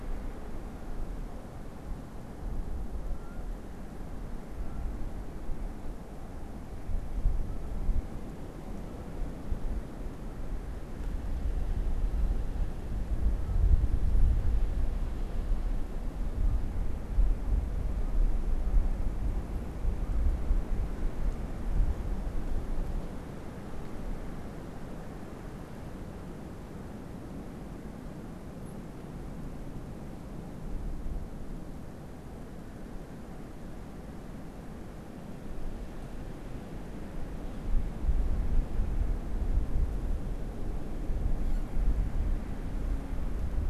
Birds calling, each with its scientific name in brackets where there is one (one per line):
Canada Goose (Branta canadensis)